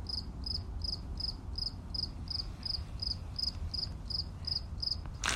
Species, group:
Gryllus pennsylvanicus, Orthoptera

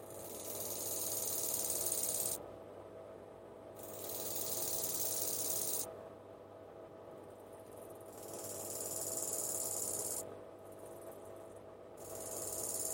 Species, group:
Chorthippus biguttulus, Orthoptera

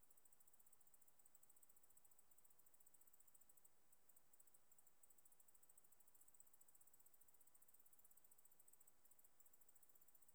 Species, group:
Decticus albifrons, Orthoptera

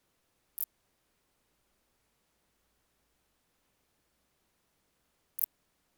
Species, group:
Phaneroptera nana, Orthoptera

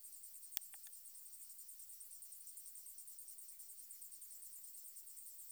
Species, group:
Decticus albifrons, Orthoptera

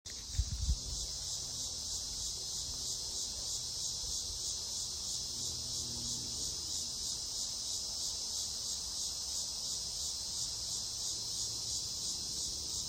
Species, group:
Megatibicen dealbatus, Cicadidae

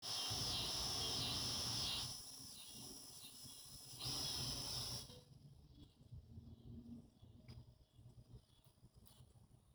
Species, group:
Neotibicen pruinosus, Cicadidae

